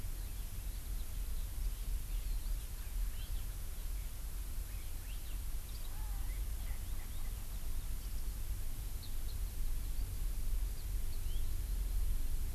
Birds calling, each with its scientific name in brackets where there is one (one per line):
Eurasian Skylark (Alauda arvensis)
Erckel's Francolin (Pternistis erckelii)